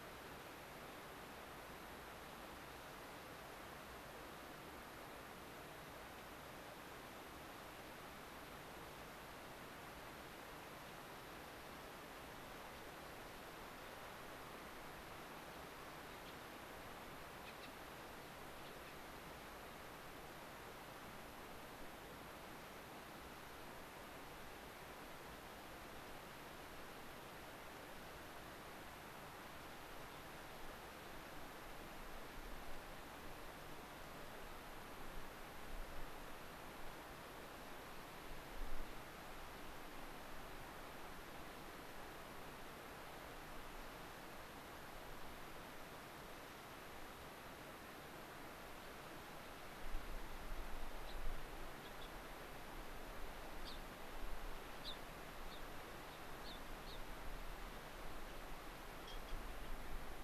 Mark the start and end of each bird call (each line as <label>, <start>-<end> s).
Gray-crowned Rosy-Finch (Leucosticte tephrocotis), 16.3-16.4 s
Gray-crowned Rosy-Finch (Leucosticte tephrocotis), 18.7-19.0 s
Gray-crowned Rosy-Finch (Leucosticte tephrocotis), 51.1-51.2 s
Gray-crowned Rosy-Finch (Leucosticte tephrocotis), 51.8-52.1 s
Gray-crowned Rosy-Finch (Leucosticte tephrocotis), 53.7-53.8 s
Gray-crowned Rosy-Finch (Leucosticte tephrocotis), 54.8-55.0 s
Gray-crowned Rosy-Finch (Leucosticte tephrocotis), 55.5-55.6 s
Gray-crowned Rosy-Finch (Leucosticte tephrocotis), 56.5-56.6 s
Gray-crowned Rosy-Finch (Leucosticte tephrocotis), 56.9-57.0 s